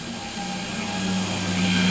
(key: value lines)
label: anthrophony, boat engine
recorder: SoundTrap 500